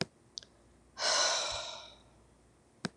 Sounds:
Sigh